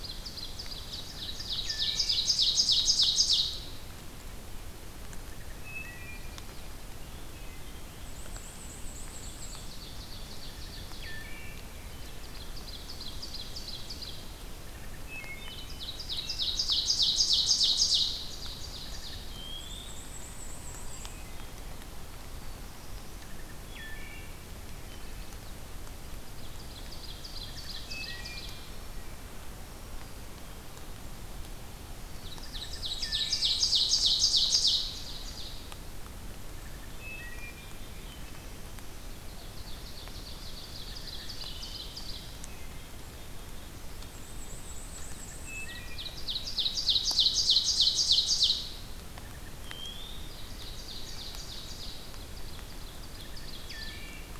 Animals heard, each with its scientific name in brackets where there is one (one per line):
Black-capped Chickadee (Poecile atricapillus)
Black-and-white Warbler (Mniotilta varia)
Ovenbird (Seiurus aurocapilla)
Chestnut-sided Warbler (Setophaga pensylvanica)
Black-throated Green Warbler (Setophaga virens)
Black-throated Blue Warbler (Setophaga caerulescens)
Wood Thrush (Hylocichla mustelina)